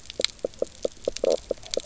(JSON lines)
{"label": "biophony, knock croak", "recorder": "SoundTrap 300"}